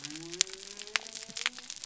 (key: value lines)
label: biophony
recorder: SoundTrap 300